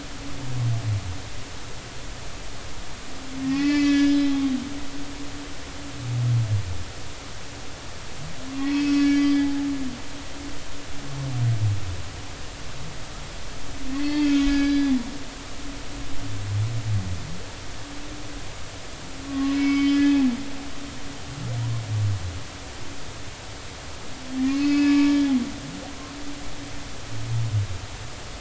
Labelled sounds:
3.4	4.2	humpback whale, 1.6 to 4.7 kHz
8.6	9.7	humpback whale, 0.80 to 5.6 kHz
13.9	14.9	humpback whale, 1.6 to 4.6 kHz
19.3	20.3	humpback whale, 0.80 to 4.6 kHz
24.4	25.8	humpback whale, 1.0 to 5.2 kHz

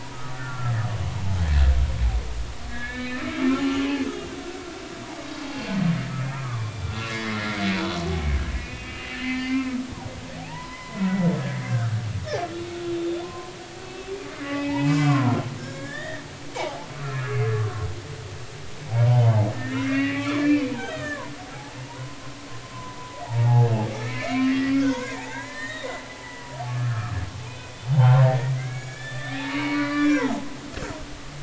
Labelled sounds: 0.1	0.7	humpback whale, 1.1 to 1.6 kHz
2.7	4.3	humpback whale, 1.2 to 3.8 kHz
6.3	7.6	humpback whale, 0.80 to 4.0 kHz
8.6	9.8	humpback whale, 0.96 to 4.7 kHz
10.4	11.3	humpback whale, 0.80 to 2.1 kHz
11.6	12.0	humpback whale, 1.2 to 1.7 kHz
13.2	14.1	humpback whale, 0.86 to 2.7 kHz
14.4	17.9	humpback whale, 0.80 to 7.2 kHz
19.1	21.3	humpback whale, 0.93 to 3.3 kHz
21.9	22.2	humpback whale, 0.90 to 1.1 kHz
22.7	25.9	humpback whale, 0.80 to 4.4 kHz
26.2	27.2	humpback whale, 0.80 to 2.0 kHz
27.5	30.5	humpback whale, 0.80 to 7.7 kHz

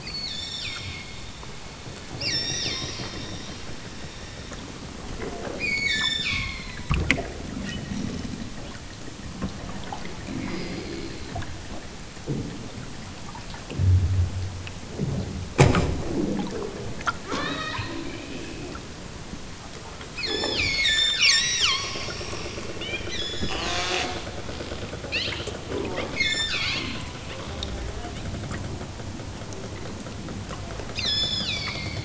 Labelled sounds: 0.0	1.2	killer whale, southern Alaska resident, 1.4 to 8.0 kHz
2.1	3.3	killer whale, southern Alaska resident, 1.3 to 8.0 kHz
5.5	6.7	killer whale, southern Alaska resident, 0.60 to 8.0 kHz
17.3	17.8	killer whale, southern Alaska resident, 0.69 to 7.1 kHz
20.1	22.1	killer whale, southern Alaska resident, 0.69 to 8.0 kHz
22.8	23.9	killer whale, southern Alaska resident, 1.8 to 8.0 kHz
25.1	25.5	killer whale, southern Alaska resident, 1.6 to 7.3 kHz
26.1	27.0	killer whale, southern Alaska resident, 0.92 to 8.0 kHz
31.0	32.0	killer whale, southern Alaska resident, 1.4 to 8.0 kHz

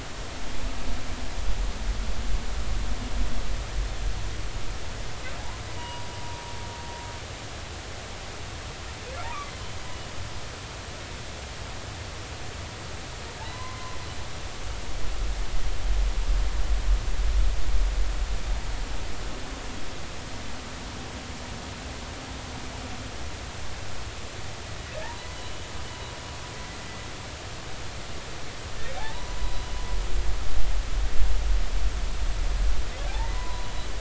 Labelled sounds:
5.8	6.1	humpback whale, 0.90 to 1.0 kHz
13.4	14.0	humpback whale, 0.96 to 2.1 kHz
25.0	25.6	humpback whale, 0.83 to 3.0 kHz
29.0	29.6	humpback whale, 0.80 to 1.1 kHz
33.1	33.7	humpback whale, 0.80 to 2.0 kHz

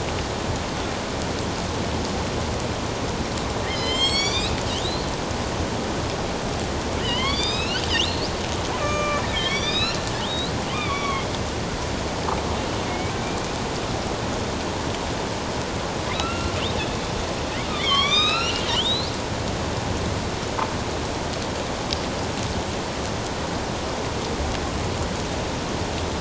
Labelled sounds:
3.7	5.1	killer whale, northern resident, A clan, AB subclan, 1.9 to 8.0 kHz
7.0	8.3	killer whale, northern resident, A clan, AB subclan, 0.94 to 5.5 kHz
8.8	11.3	killer whale, northern resident, A clan, AB subclan, 1.0 to 6.0 kHz
12.9	13.1	killer whale, northern resident, A clan, AB subclan, 2.1 to 2.4 kHz
16.2	16.5	killer whale, northern resident, A clan, AB subclan, 1.2 to 2.8 kHz
17.7	19.1	killer whale, northern resident, A clan, AB subclan, 1.0 to 6.5 kHz

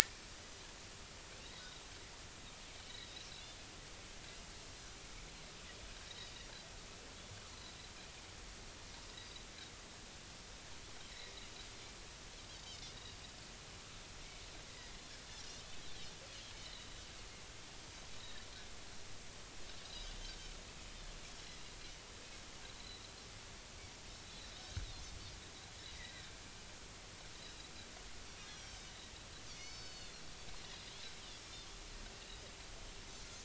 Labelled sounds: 6.1	6.3	Pacific white-sided dolphin, 3.7 to 4.0 kHz
11.1	11.4	Pacific white-sided dolphin, 1.9 to 2.2 kHz
12.5	12.8	Pacific white-sided dolphin, 4.4 to 4.8 kHz
16.7	17.0	Pacific white-sided dolphin, 3.7 to 4.2 kHz
18.2	18.5	Pacific white-sided dolphin, 3.6 to 4.2 kHz
22.7	23.0	Pacific white-sided dolphin, 3.8 to 4.2 kHz
26.0	26.3	Pacific white-sided dolphin, 1.8 to 2.1 kHz
28.5	29.0	Pacific white-sided dolphin, 3.0 to 6.3 kHz
29.5	30.2	Pacific white-sided dolphin, 2.8 to 6.1 kHz

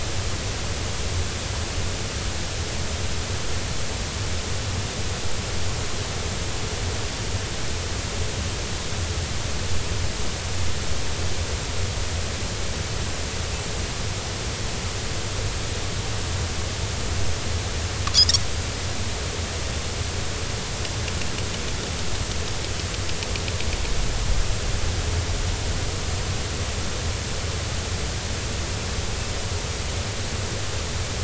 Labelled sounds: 18.1	18.4	Pacific white-sided dolphin, 4.7 to 6.0 kHz

